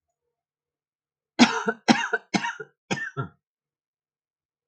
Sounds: Cough